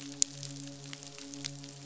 {"label": "biophony, midshipman", "recorder": "SoundTrap 500"}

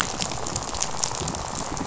{"label": "biophony, rattle", "recorder": "SoundTrap 500"}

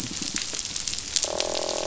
{"label": "biophony", "recorder": "SoundTrap 500"}
{"label": "biophony, croak", "recorder": "SoundTrap 500"}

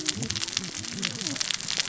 {"label": "biophony, cascading saw", "recorder": "SoundTrap 600 or HydroMoth"}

